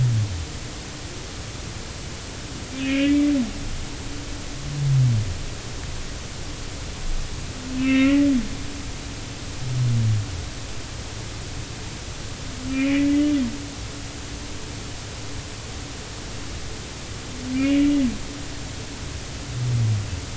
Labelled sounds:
2.8	3.3	humpback whale, 2.1 to 2.9 kHz
7.8	8.3	humpback whale, 1.3 to 3.0 kHz
12.7	13.0	humpback whale, 2.1 to 2.6 kHz
17.5	18.0	humpback whale, 2.0 to 2.9 kHz

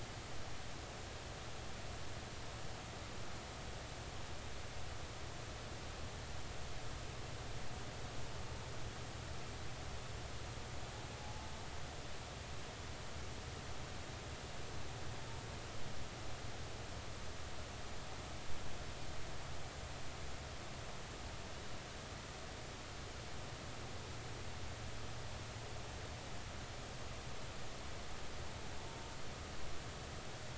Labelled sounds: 11.2	11.5	humpback whale, 0.80 to 0.93 kHz

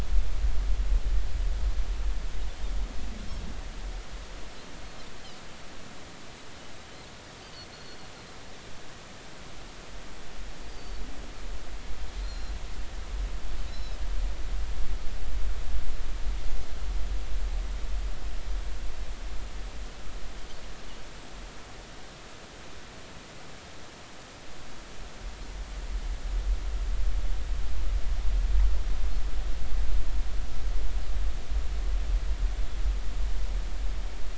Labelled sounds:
7.7	8.0	Pacific white-sided dolphin, 4.2 to 4.4 kHz
10.7	11.0	Pacific white-sided dolphin, 4.4 to 5.0 kHz
12.2	12.5	Pacific white-sided dolphin, 4.0 to 5.7 kHz
13.7	14.0	Pacific white-sided dolphin, 3.8 to 5.5 kHz

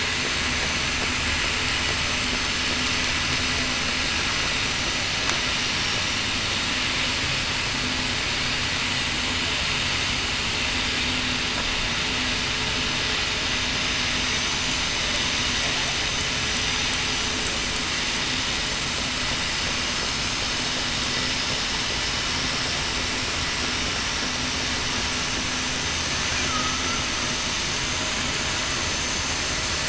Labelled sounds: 4.6	5.1	vessel noise, 5.95 to 6.02 kHz

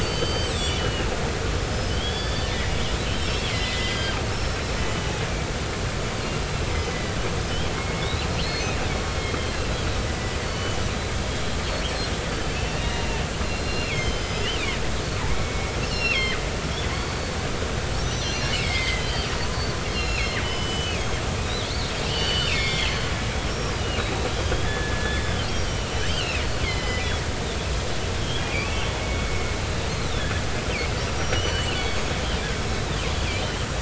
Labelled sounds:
0.0	1.1	killer whale, northern resident, 2.8 to 7.9 kHz
1.6	2.6	killer whale, northern resident, 1.6 to 5.3 kHz
3.1	5.1	killer whale, northern resident, 1.5 to 5.6 kHz
6.9	7.2	killer whale, northern resident, 1.8 to 2.0 kHz
7.4	8.8	killer whale, northern resident, 2.1 to 5.5 kHz
9.5	10.8	killer whale, northern resident, 2.7 to 4.6 kHz
11.5	14.6	killer whale, northern resident, 2.0 to 8.0 kHz
15.3	16.4	killer whale, northern resident, 1.7 to 5.6 kHz
18.0	19.3	killer whale, northern resident, 1.9 to 6.0 kHz
19.9	21.0	killer whale, northern resident, 1.7 to 5.2 kHz
22.0	23.0	killer whale, northern resident, 2.0 to 5.5 kHz
23.5	27.1	killer whale, northern resident, 1.6 to 5.7 kHz
28.2	30.3	killer whale, northern resident, 2.1 to 4.3 kHz
31.2	32.1	killer whale, northern resident, 2.5 to 5.8 kHz
32.7	33.6	killer whale, northern resident, 2.9 to 4.1 kHz

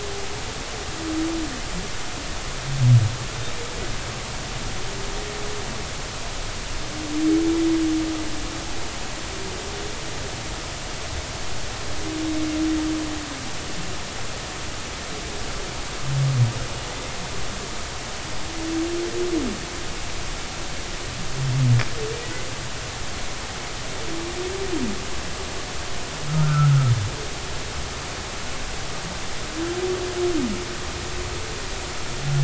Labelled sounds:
26.4	26.7	humpback whale, 1.2 to 1.5 kHz

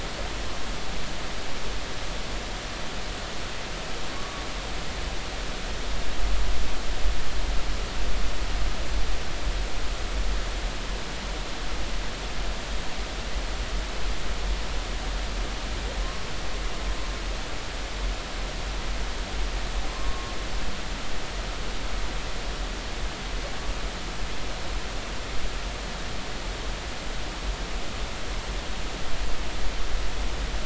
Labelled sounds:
4.2	4.4	humpback whale, 1.1 to 1.2 kHz
16.0	16.3	humpback whale, 0.99 to 1.2 kHz
19.9	20.3	humpback whale, 0.99 to 1.2 kHz

